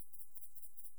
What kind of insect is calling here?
orthopteran